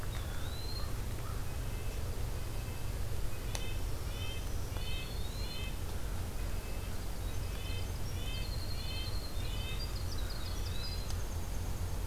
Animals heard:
Winter Wren (Troglodytes hiemalis), Eastern Wood-Pewee (Contopus virens), American Crow (Corvus brachyrhynchos), Red-breasted Nuthatch (Sitta canadensis), Black-throated Green Warbler (Setophaga virens)

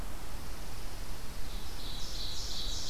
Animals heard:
Chipping Sparrow (Spizella passerina), Ovenbird (Seiurus aurocapilla)

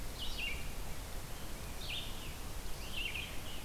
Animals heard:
Scarlet Tanager (Piranga olivacea), Rose-breasted Grosbeak (Pheucticus ludovicianus), Red-eyed Vireo (Vireo olivaceus)

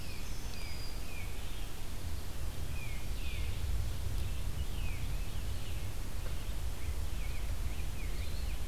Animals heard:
Rose-breasted Grosbeak (Pheucticus ludovicianus), Black-throated Green Warbler (Setophaga virens), Tufted Titmouse (Baeolophus bicolor), Red-eyed Vireo (Vireo olivaceus), Eastern Wood-Pewee (Contopus virens)

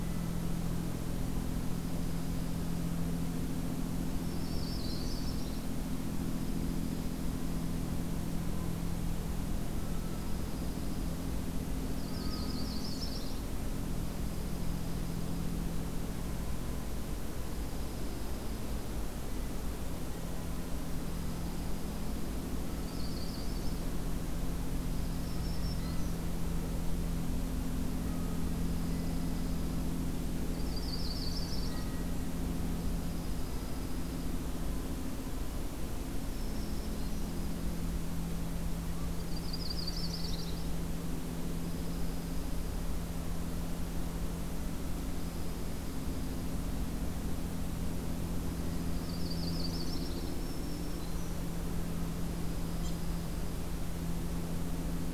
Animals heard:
Yellow-rumped Warbler (Setophaga coronata), Black-throated Green Warbler (Setophaga virens), Dark-eyed Junco (Junco hyemalis), unidentified call

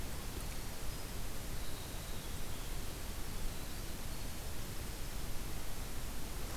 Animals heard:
Winter Wren (Troglodytes hiemalis)

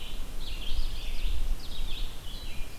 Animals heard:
Red-eyed Vireo (Vireo olivaceus), Ovenbird (Seiurus aurocapilla)

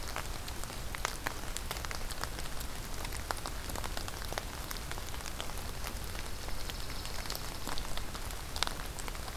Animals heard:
Dark-eyed Junco (Junco hyemalis)

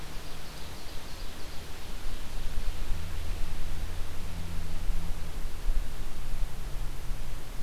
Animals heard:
Ovenbird (Seiurus aurocapilla)

